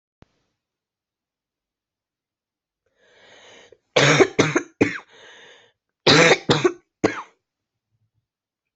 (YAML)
expert_labels:
- quality: good
  cough_type: dry
  dyspnea: false
  wheezing: false
  stridor: false
  choking: false
  congestion: false
  nothing: true
  diagnosis: COVID-19
  severity: mild
age: 41
gender: female
respiratory_condition: false
fever_muscle_pain: true
status: COVID-19